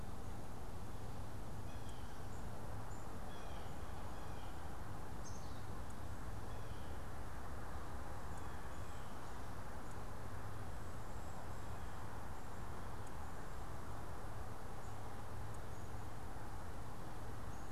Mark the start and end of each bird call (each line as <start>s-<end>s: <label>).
1.4s-3.8s: Blue Jay (Cyanocitta cristata)
5.1s-6.1s: Black-capped Chickadee (Poecile atricapillus)
6.3s-7.1s: Blue Jay (Cyanocitta cristata)